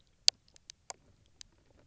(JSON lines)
{"label": "biophony, knock croak", "recorder": "SoundTrap 300"}